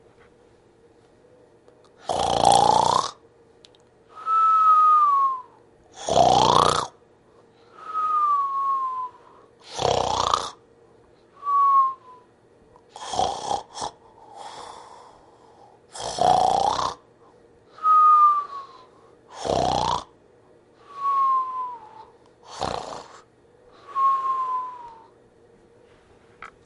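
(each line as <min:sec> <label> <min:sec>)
0:01.9 A person snores rhythmically and loudly. 0:26.6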